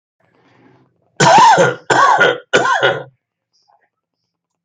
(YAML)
expert_labels:
- quality: good
  cough_type: dry
  dyspnea: false
  wheezing: false
  stridor: false
  choking: false
  congestion: false
  nothing: true
  diagnosis: upper respiratory tract infection
  severity: mild
age: 64
gender: male
respiratory_condition: true
fever_muscle_pain: true
status: symptomatic